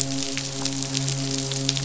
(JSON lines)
{"label": "biophony, midshipman", "recorder": "SoundTrap 500"}